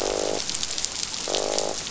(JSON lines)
{"label": "biophony, croak", "recorder": "SoundTrap 500"}